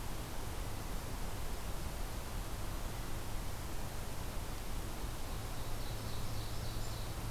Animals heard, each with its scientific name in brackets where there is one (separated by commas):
Ovenbird (Seiurus aurocapilla)